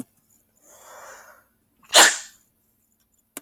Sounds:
Sneeze